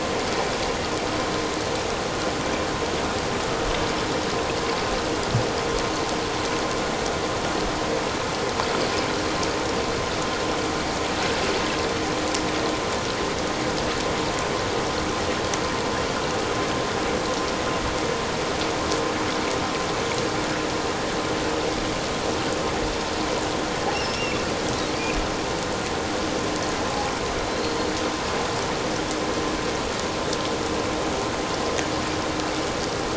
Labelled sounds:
24.0	24.4	killer whale, offshore, 2.6 to 5.6 kHz
27.5	27.8	killer whale, offshore, 3.9 to 4.3 kHz

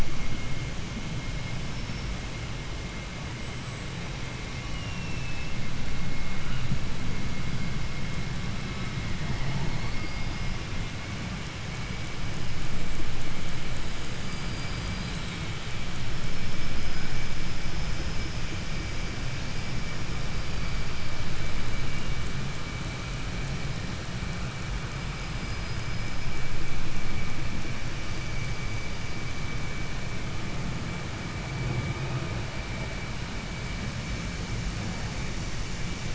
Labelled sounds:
1.0	2.3	killer whale, 4.8 to 5.8 kHz
3.2	5.6	killer whale, 0.84 to 8.0 kHz
9.6	10.7	killer whale, 3.6 to 8.0 kHz
11.6	13.1	killer whale, 4.4 to 5.6 kHz
13.9	15.3	killer whale, southern resident, 0.84 to 8.0 kHz
16.0	18.4	killer whale, 1.3 to 6.2 kHz
20.1	22.3	killer whale, 2.6 to 5.5 kHz
24.8	26.5	killer whale, 4.3 to 5.7 kHz
27.9	29.5	killer whale, 4.3 to 5.1 kHz

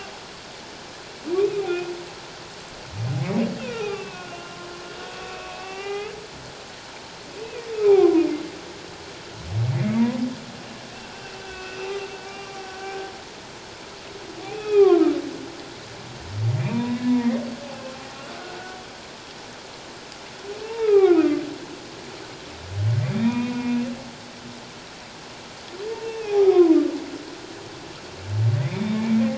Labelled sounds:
1.7	1.9	humpback whale, 2.4 to 2.6 kHz
3.6	4.6	humpback whale, 1.0 to 3.9 kHz
5.2	6.1	humpback whale, 0.78 to 3.0 kHz
7.7	8.2	humpback whale, 0.78 to 2.6 kHz
9.7	10.2	humpback whale, 0.88 to 2.3 kHz
11.1	12.8	humpback whale, 1.4 to 5.9 kHz
14.4	15.0	humpback whale, 0.97 to 3.5 kHz
16.6	17.4	humpback whale, 0.91 to 2.8 kHz
18.4	18.8	humpback whale, 1.4 to 1.5 kHz
20.6	21.4	humpback whale, 0.84 to 2.8 kHz
23.0	23.9	humpback whale, 0.91 to 3.8 kHz
26.0	26.8	humpback whale, 0.78 to 2.8 kHz
28.5	29.2	humpback whale, 1.8 to 2.6 kHz

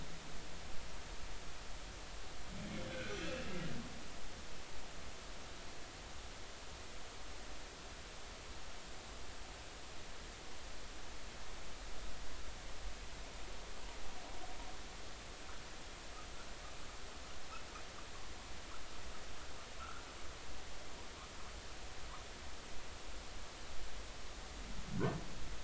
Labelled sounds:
2.9	3.5	humpback whale, 1.4 to 2.9 kHz

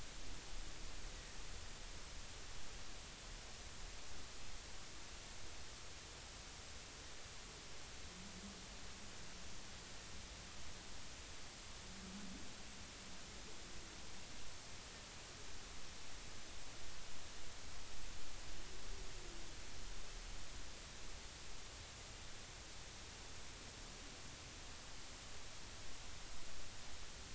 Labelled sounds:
1.1	1.4	humpback whale, 1.8 to 2.0 kHz

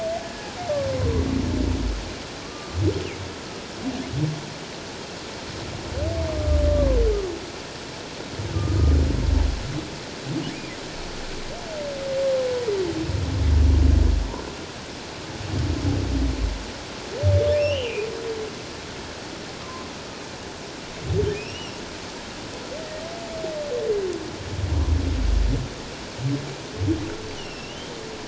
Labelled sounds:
2.4	2.8	humpback whale, 1.1 to 1.2 kHz
6.3	7.0	humpback whale, 0.97 to 1.2 kHz
17.5	18.1	humpback whale, 2.3 to 3.2 kHz
19.6	19.9	humpback whale, 0.97 to 1.1 kHz
21.3	21.8	humpback whale, 2.4 to 3.0 kHz
27.4	27.9	humpback whale, 2.6 to 5.6 kHz

